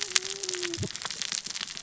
{"label": "biophony, cascading saw", "recorder": "SoundTrap 600 or HydroMoth"}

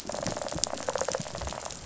{"label": "biophony, rattle response", "recorder": "SoundTrap 500"}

